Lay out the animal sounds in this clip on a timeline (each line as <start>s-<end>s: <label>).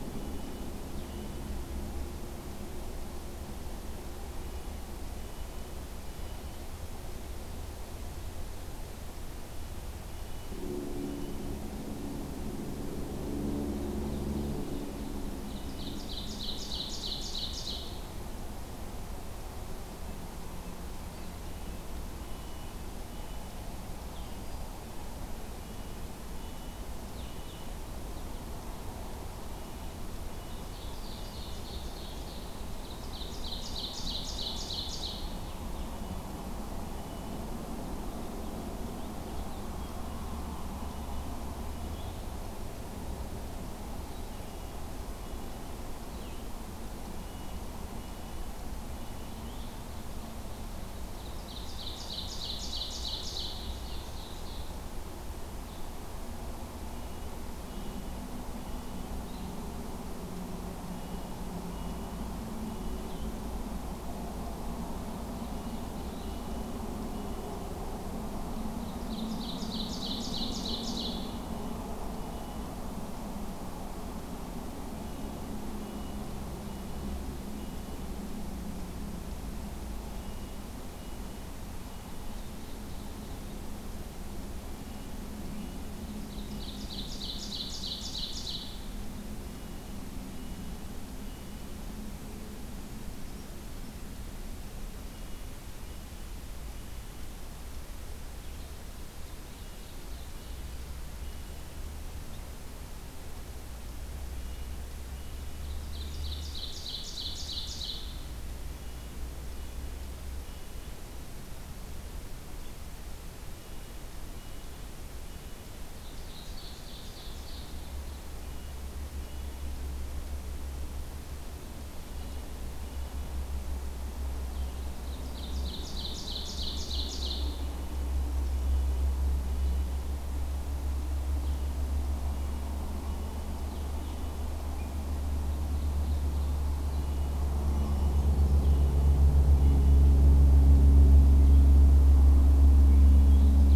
0.0s-1.6s: Red-breasted Nuthatch (Sitta canadensis)
4.4s-6.5s: Red-breasted Nuthatch (Sitta canadensis)
9.4s-11.5s: Red-breasted Nuthatch (Sitta canadensis)
13.5s-18.0s: Ovenbird (Seiurus aurocapilla)
21.2s-23.5s: Red-breasted Nuthatch (Sitta canadensis)
24.0s-27.7s: Blue-headed Vireo (Vireo solitarius)
25.6s-27.8s: Red-breasted Nuthatch (Sitta canadensis)
29.6s-31.6s: Red-breasted Nuthatch (Sitta canadensis)
30.5s-35.3s: Ovenbird (Seiurus aurocapilla)
35.0s-37.5s: Red-breasted Nuthatch (Sitta canadensis)
39.1s-49.7s: Blue-headed Vireo (Vireo solitarius)
39.6s-42.2s: Red-breasted Nuthatch (Sitta canadensis)
44.3s-45.7s: Red-breasted Nuthatch (Sitta canadensis)
47.1s-49.4s: Red-breasted Nuthatch (Sitta canadensis)
51.1s-54.7s: Ovenbird (Seiurus aurocapilla)
53.5s-54.0s: Red-breasted Nuthatch (Sitta canadensis)
55.6s-63.4s: Blue-headed Vireo (Vireo solitarius)
56.8s-59.0s: Red-breasted Nuthatch (Sitta canadensis)
60.9s-63.1s: Red-breasted Nuthatch (Sitta canadensis)
64.5s-66.3s: Ovenbird (Seiurus aurocapilla)
66.1s-67.6s: Red-breasted Nuthatch (Sitta canadensis)
68.7s-71.4s: Ovenbird (Seiurus aurocapilla)
70.5s-72.7s: Red-breasted Nuthatch (Sitta canadensis)
74.8s-78.1s: Red-breasted Nuthatch (Sitta canadensis)
80.1s-82.5s: Red-breasted Nuthatch (Sitta canadensis)
81.8s-83.4s: Ovenbird (Seiurus aurocapilla)
84.7s-85.9s: Red-breasted Nuthatch (Sitta canadensis)
86.3s-88.7s: Ovenbird (Seiurus aurocapilla)
89.5s-91.8s: Red-breasted Nuthatch (Sitta canadensis)
95.1s-97.3s: Red-breasted Nuthatch (Sitta canadensis)
99.2s-100.7s: Ovenbird (Seiurus aurocapilla)
99.4s-101.8s: Red-breasted Nuthatch (Sitta canadensis)
104.3s-105.7s: Red-breasted Nuthatch (Sitta canadensis)
105.7s-108.3s: Ovenbird (Seiurus aurocapilla)
108.8s-111.0s: Red-breasted Nuthatch (Sitta canadensis)
113.4s-115.7s: Red-breasted Nuthatch (Sitta canadensis)
115.8s-117.8s: Ovenbird (Seiurus aurocapilla)
118.4s-119.8s: Red-breasted Nuthatch (Sitta canadensis)
122.0s-123.3s: Red-breasted Nuthatch (Sitta canadensis)
125.1s-127.6s: Ovenbird (Seiurus aurocapilla)
127.4s-129.9s: Red-breasted Nuthatch (Sitta canadensis)
131.4s-134.3s: Blue-headed Vireo (Vireo solitarius)
132.2s-134.6s: Red-breasted Nuthatch (Sitta canadensis)
135.5s-136.7s: Ovenbird (Seiurus aurocapilla)
136.9s-140.1s: Red-breasted Nuthatch (Sitta canadensis)
137.6s-138.7s: Brown Creeper (Certhia americana)